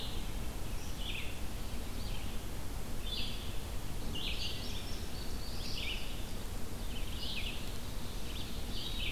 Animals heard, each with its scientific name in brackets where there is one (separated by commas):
Indigo Bunting (Passerina cyanea), Red-eyed Vireo (Vireo olivaceus)